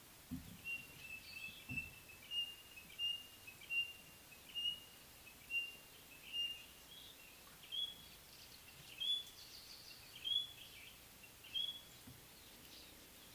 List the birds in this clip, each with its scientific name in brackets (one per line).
White-browed Robin-Chat (Cossypha heuglini)